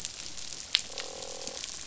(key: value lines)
label: biophony, croak
recorder: SoundTrap 500